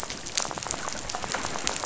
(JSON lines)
{"label": "biophony, rattle", "recorder": "SoundTrap 500"}